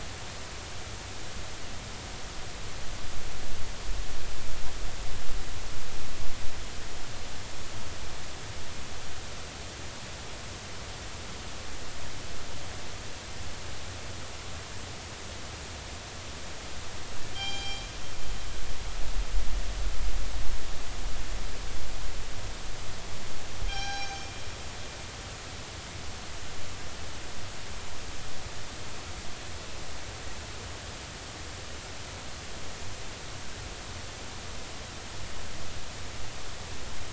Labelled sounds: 17.3	17.8	killer whale, northern resident, G clan, call N24ii, 0.80 to 6.4 kHz
23.7	24.3	killer whale, northern resident, G clan, call N24ii, 0.80 to 6.4 kHz

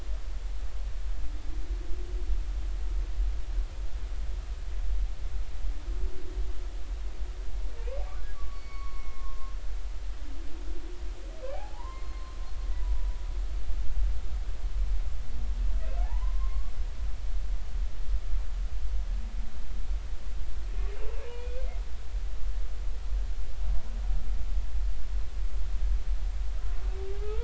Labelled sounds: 8.3	9.5	humpback whale, 1.0 to 4.5 kHz
11.5	12.4	humpback whale, 0.80 to 4.3 kHz
16.0	16.7	humpback whale, 0.80 to 1.2 kHz
21.2	21.6	humpback whale, 2.3 to 2.6 kHz
27.2	27.4	humpback whale, 0.80 to 1.5 kHz

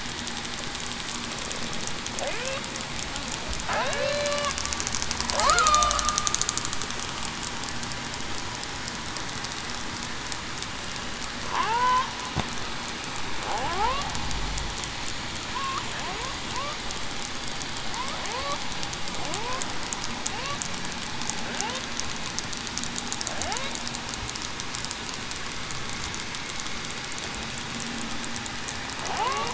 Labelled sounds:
3.9	4.5	killer whale, southern resident, 0.40 to 0.61 kHz
5.4	5.9	killer whale, southern resident, 0.82 to 1.5 kHz
11.5	12.0	killer whale, southern resident, 0.35 to 1.6 kHz
13.5	13.9	killer whale, southern resident, 0.58 to 1.4 kHz
19.3	19.6	killer whale, southern resident, 0.28 to 0.54 kHz
29.0	29.5	killer whale, southern resident, 0.63 to 1.2 kHz

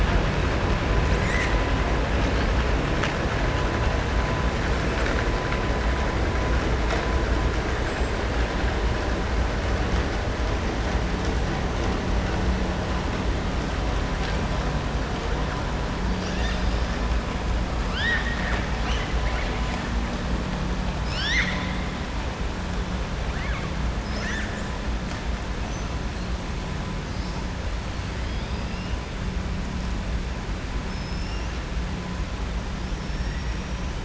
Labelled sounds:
17.8	18.7	killer whale, southern resident, 1.1 to 5.2 kHz
20.9	21.7	killer whale, southern resident, 1.5 to 7.3 kHz
28.2	28.9	killer whale, southern resident, 3.1 to 5.5 kHz
30.8	31.5	killer whale, southern resident, 5.2 to 6.3 kHz
32.9	33.4	killer whale, southern resident, 5.0 to 5.9 kHz

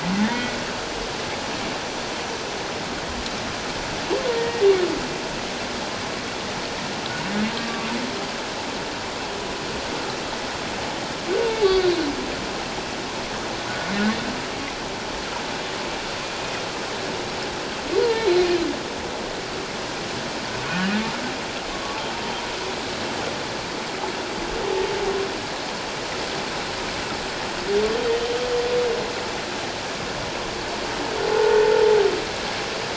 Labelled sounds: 0.2	0.5	humpback whale, 1.7 to 2.0 kHz
4.3	4.7	humpback whale, 1.8 to 2.1 kHz
7.6	7.9	humpback whale, 1.1 to 1.2 kHz
11.6	11.9	humpback whale, 4.2 to 4.6 kHz
13.7	13.9	humpback whale, 1.4 to 1.6 kHz
18.0	18.5	humpback whale, 0.88 to 2.3 kHz
20.6	20.9	humpback whale, 1.4 to 1.6 kHz
31.3	31.6	humpback whale, 0.81 to 0.94 kHz

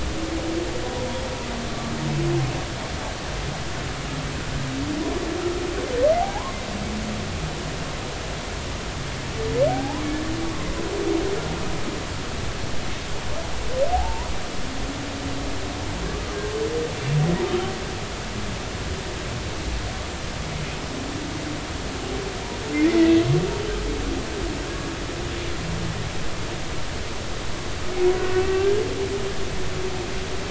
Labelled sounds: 6.2	6.6	humpback whale, 0.80 to 1.2 kHz
9.7	10.0	humpback whale, 0.80 to 1.8 kHz
13.9	14.3	humpback whale, 0.80 to 1.0 kHz
23.0	23.2	humpback whale, 1.9 to 2.0 kHz
28.2	28.7	humpback whale, 1.1 to 1.6 kHz

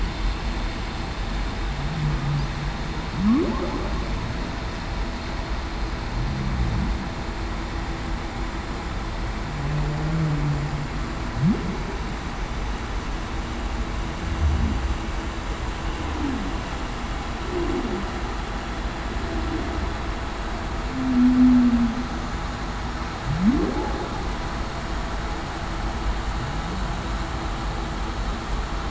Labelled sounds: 20.9	21.9	humpback whale, 0.19 to 0.33 kHz

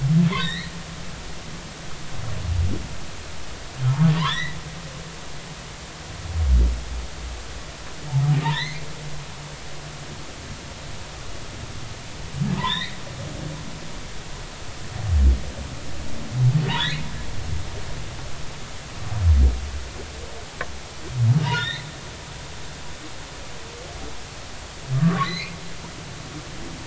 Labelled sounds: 0.3	0.7	humpback whale, 1.7 to 4.4 kHz
3.9	4.6	humpback whale, 0.80 to 4.1 kHz
8.4	8.9	humpback whale, 0.80 to 4.3 kHz
12.6	13.0	humpback whale, 0.86 to 4.2 kHz
16.7	17.1	humpback whale, 1.6 to 4.2 kHz
21.4	21.9	humpback whale, 0.90 to 4.2 kHz
24.9	25.6	humpback whale, 0.99 to 4.4 kHz

